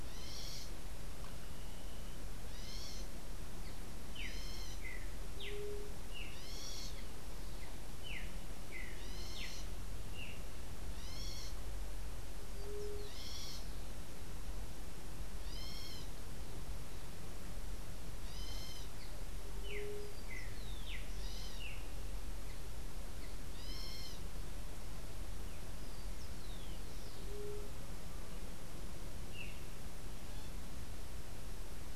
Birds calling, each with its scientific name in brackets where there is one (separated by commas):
White-tipped Dove (Leptotila verreauxi), Streaked Saltator (Saltator striatipectus), unidentified bird, Rufous-collared Sparrow (Zonotrichia capensis)